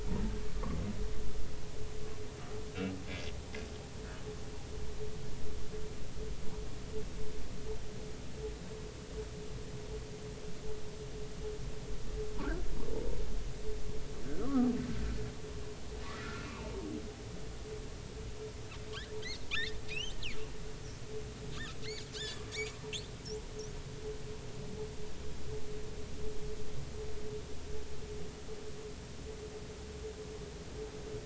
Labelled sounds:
14.2	14.7	humpback whale, 1.0 to 1.7 kHz
16.1	16.7	humpback whale, 0.83 to 2.8 kHz
19.5	20.2	humpback whale, 2.1 to 4.4 kHz
21.5	21.8	humpback whale, 3.2 to 3.9 kHz
22.1	22.4	humpback whale, 2.8 to 3.6 kHz

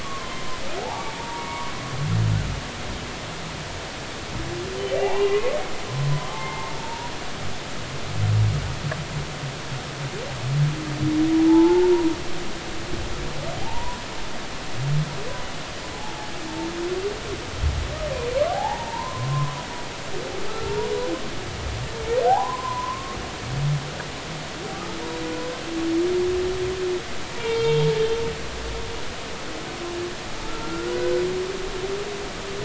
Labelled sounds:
0.0	1.7	humpback whale, 0.80 to 2.3 kHz
4.9	7.1	humpback whale, 0.80 to 2.9 kHz
11.5	12.0	humpback whale, 0.80 to 1.5 kHz
13.6	14.0	humpback whale, 0.80 to 1.1 kHz
18.5	19.6	humpback whale, 0.80 to 1.9 kHz
22.3	23.2	humpback whale, 0.80 to 1.1 kHz
27.4	28.0	humpback whale, 0.86 to 3.8 kHz
30.6	31.2	humpback whale, 1.3 to 1.6 kHz

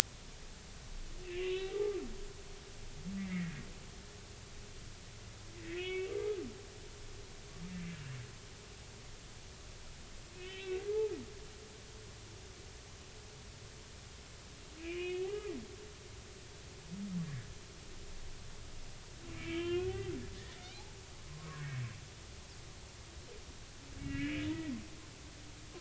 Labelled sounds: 1.3	2.0	humpback whale, 1.1 to 4.0 kHz
3.2	3.5	humpback whale, 1.9 to 2.2 kHz
5.6	6.1	humpback whale, 1.8 to 2.8 kHz
10.3	10.8	humpback whale, 1.8 to 3.9 kHz
14.8	15.5	humpback whale, 1.1 to 3.0 kHz
19.3	20.1	humpback whale, 0.99 to 3.4 kHz
21.3	21.8	humpback whale, 0.99 to 1.7 kHz
24.0	24.5	humpback whale, 1.6 to 3.0 kHz

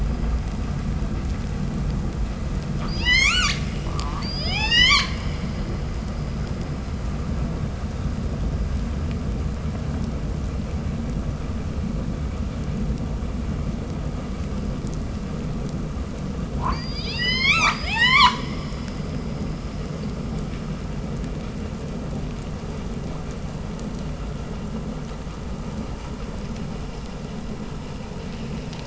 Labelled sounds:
2.7	5.5	killer whale, 0.32 to 8.0 kHz
16.5	18.6	killer whale, 0.46 to 8.0 kHz

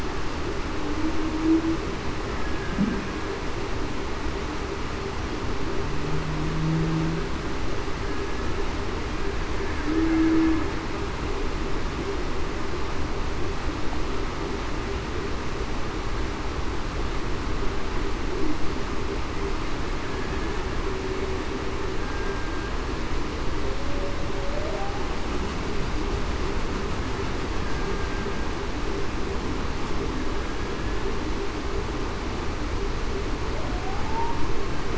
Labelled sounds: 9.8	10.6	humpback whale, 0.28 to 0.45 kHz
22.0	22.5	killer whale, Bigg's (transient), 1.57 to 1.64 kHz
27.9	28.3	killer whale, Bigg's (transient), 1.57 to 1.64 kHz
33.8	34.3	humpback whale, 0.73 to 0.96 kHz

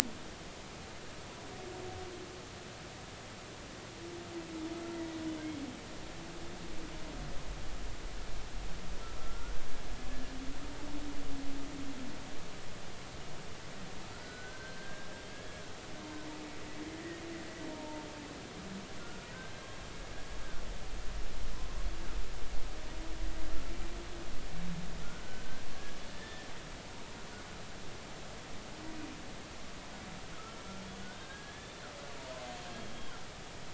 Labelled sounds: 9.2	9.6	humpback whale, 1.2 to 1.6 kHz
14.1	15.6	humpback whale, 1.3 to 1.8 kHz
17.7	18.1	humpback whale, 0.86 to 0.99 kHz
19.0	19.8	humpback whale, 1.3 to 1.7 kHz
25.7	26.5	humpback whale, 1.6 to 3.6 kHz
31.1	31.8	humpback whale, 1.5 to 3.8 kHz

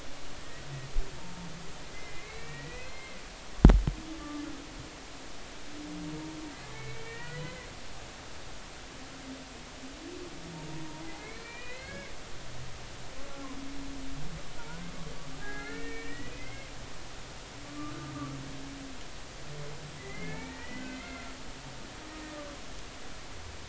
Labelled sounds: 0.4	0.6	humpback whale, 1.8 to 2.0 kHz
1.9	3.2	humpback whale, 1.8 to 2.8 kHz
6.5	7.7	humpback whale, 1.3 to 3.1 kHz
11.0	12.1	humpback whale, 1.5 to 4.3 kHz
14.6	16.7	humpback whale, 0.80 to 2.7 kHz
17.6	17.9	humpback whale, 1.1 to 1.2 kHz
20.0	21.3	humpback whale, 0.83 to 2.4 kHz
22.3	22.5	humpback whale, 1.1 to 1.2 kHz

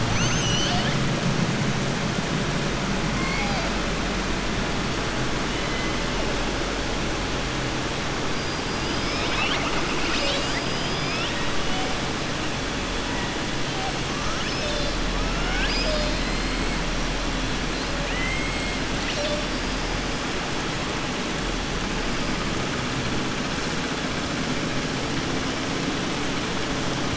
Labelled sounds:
0.0	1.0	killer whale, southern resident, 0.75 to 7.9 kHz
3.1	3.7	killer whale, southern resident, 0.67 to 4.9 kHz
14.1	15.0	killer whale, southern resident, 1.2 to 6.3 kHz
15.3	16.5	killer whale, southern resident, 0.58 to 5.4 kHz
18.0	18.8	killer whale, southern resident, 1.9 to 3.2 kHz

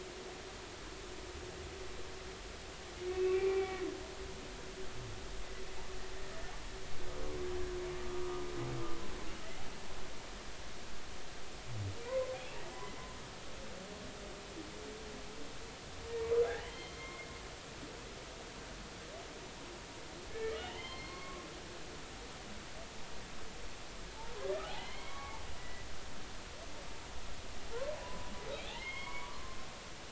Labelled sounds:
3.1	3.8	humpback whale, 1.7 to 2.7 kHz
8.1	8.4	humpback whale, 1.1 to 1.3 kHz
12.1	13.0	humpback whale, 0.90 to 2.1 kHz
16.5	17.3	humpback whale, 1.5 to 4.3 kHz
20.3	21.4	humpback whale, 0.90 to 4.4 kHz
24.6	25.9	humpback whale, 0.80 to 4.5 kHz
28.0	29.6	humpback whale, 0.93 to 3.4 kHz

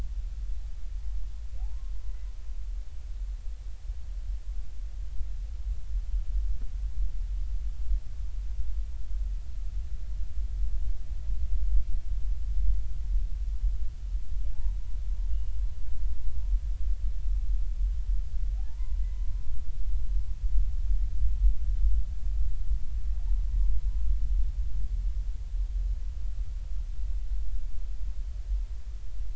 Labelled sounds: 1.6	1.9	humpback whale, 0.80 to 1.1 kHz
15.3	15.6	humpback whale, 2.8 to 2.9 kHz
18.6	19.3	humpback whale, 0.80 to 2.1 kHz
23.2	23.4	humpback whale, 0.80 to 1.0 kHz

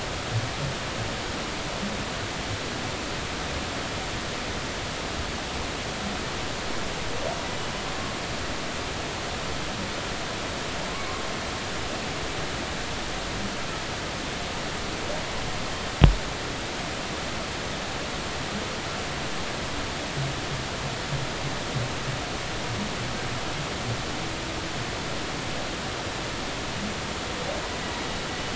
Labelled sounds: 10.9	11.2	humpback whale, 1.0 to 1.2 kHz

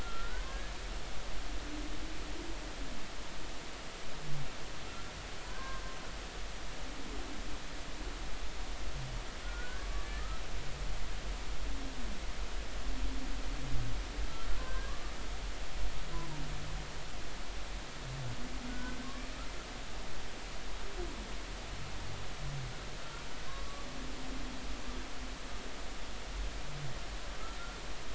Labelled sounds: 0.0	0.7	humpback whale, 0.96 to 1.8 kHz
5.4	5.8	humpback whale, 0.93 to 1.7 kHz
9.4	10.1	humpback whale, 1.1 to 1.7 kHz
14.6	15.1	humpback whale, 1.1 to 1.7 kHz
18.7	19.3	humpback whale, 1.0 to 1.6 kHz
23.5	23.9	humpback whale, 1.0 to 1.2 kHz

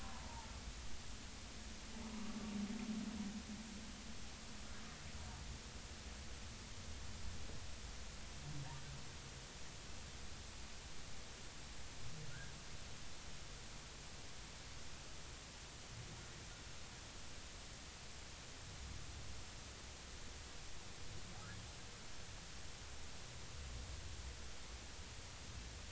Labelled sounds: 0.0	0.5	humpback whale, 0.83 to 1.1 kHz
12.3	12.5	humpback whale, 1.4 to 1.7 kHz

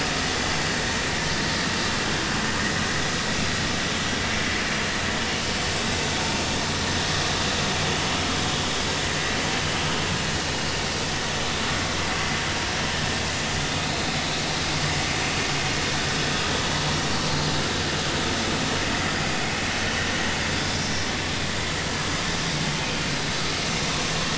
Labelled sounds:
17.3	17.6	vessel noise, 4.1 to 4.3 kHz

